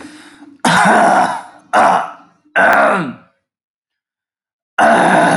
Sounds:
Throat clearing